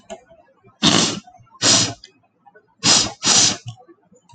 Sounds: Sniff